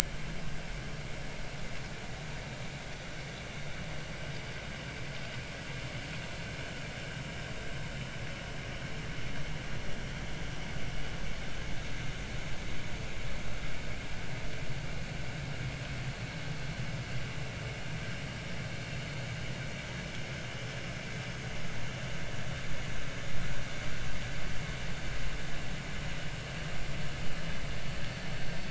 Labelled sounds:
0.0	0.3	vessel noise, 2.0 to 2.4 kHz

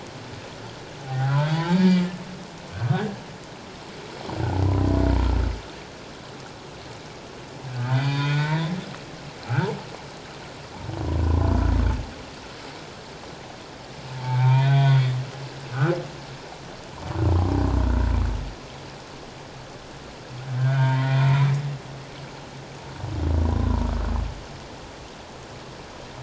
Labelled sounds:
1.0	2.1	humpback whale, 0.78 to 3.0 kHz
2.7	3.1	humpback whale, 1.4 to 1.7 kHz
4.6	5.0	humpback whale, 0.94 to 1.1 kHz
7.9	8.7	humpback whale, 0.88 to 4.8 kHz
11.2	11.5	humpback whale, 0.94 to 1.1 kHz
14.2	15.1	humpback whale, 0.84 to 3.7 kHz
20.6	21.5	humpback whale, 0.88 to 3.3 kHz
23.4	23.9	humpback whale, 0.91 to 1.2 kHz

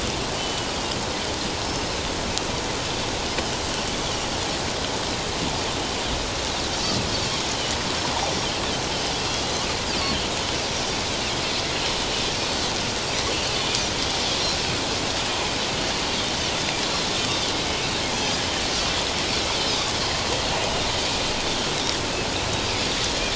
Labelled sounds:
0.4	0.8	Pacific white-sided dolphin, 2.8 to 4.9 kHz
3.3	3.6	Pacific white-sided dolphin, 4.9 to 5.2 kHz
8.2	8.5	Pacific white-sided dolphin, 5.5 to 5.9 kHz
19.7	19.9	Pacific white-sided dolphin, 3.4 to 3.9 kHz

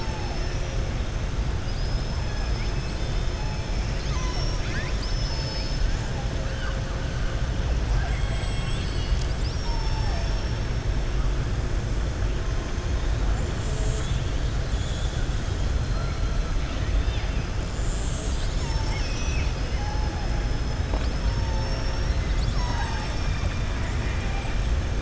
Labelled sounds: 0.2	0.8	killer whale, southern resident, 4.3 to 6.2 kHz
14.6	15.2	killer whale, southern resident, 3.3 to 4.9 kHz
16.6	17.4	killer whale, southern resident, 1.8 to 4.0 kHz

